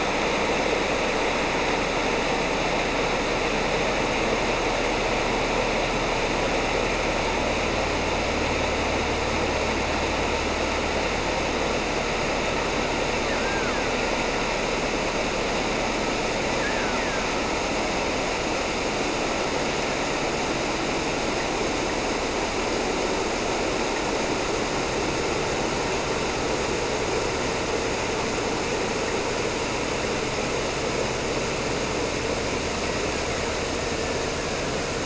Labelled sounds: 13.3	14.8	killer whale, Bigg's (transient), 0.10 to 3.0 kHz
16.4	17.3	killer whale, Bigg's (transient), 0.10 to 3.0 kHz
32.7	35.0	killer whale, Bigg's (transient), 0.69 to 3.2 kHz

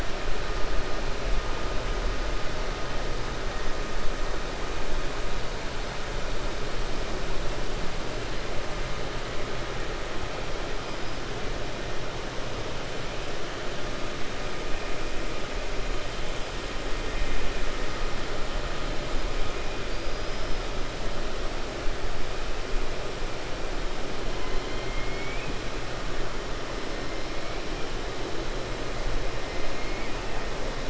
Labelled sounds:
24.6	25.5	killer whale, 2.1 to 4.1 kHz

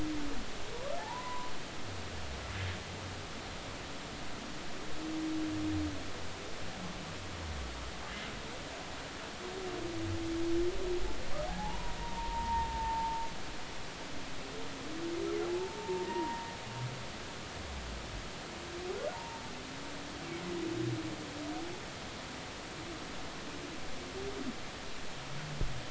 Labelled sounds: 1.0	1.5	humpback whale, 0.80 to 1.1 kHz
11.5	13.2	humpback whale, 0.80 to 1.0 kHz
15.5	16.5	humpback whale, 0.80 to 0.99 kHz
19.1	19.4	humpback whale, 0.83 to 1.0 kHz

